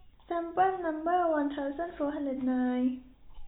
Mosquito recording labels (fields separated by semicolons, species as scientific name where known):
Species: no mosquito; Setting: cup